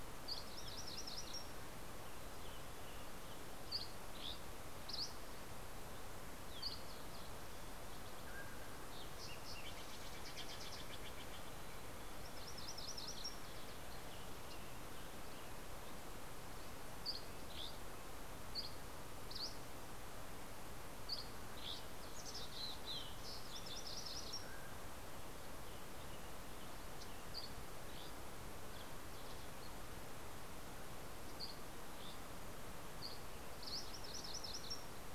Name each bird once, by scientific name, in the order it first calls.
Geothlypis tolmiei, Piranga ludoviciana, Empidonax oberholseri, Passerella iliaca, Oreortyx pictus, Cyanocitta stelleri, Sitta canadensis, Poecile gambeli